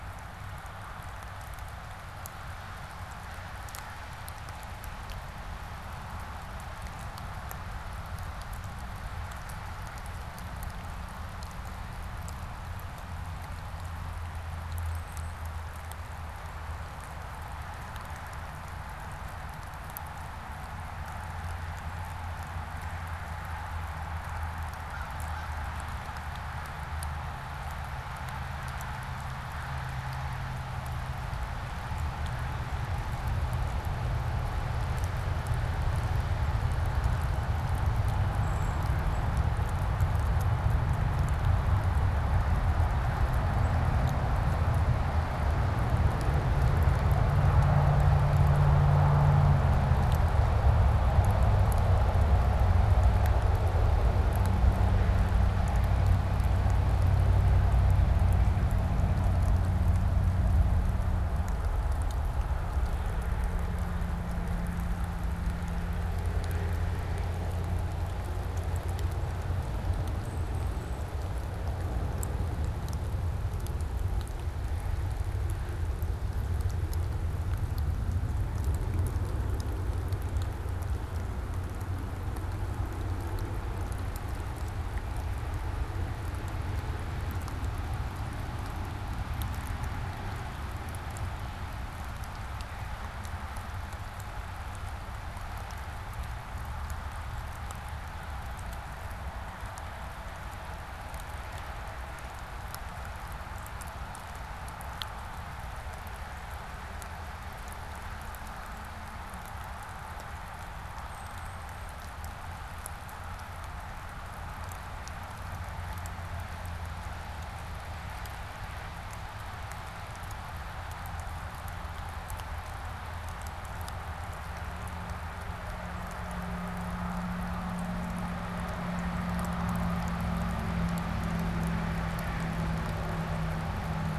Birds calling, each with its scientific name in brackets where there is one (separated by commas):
American Crow (Corvus brachyrhynchos), Brown Creeper (Certhia americana), unidentified bird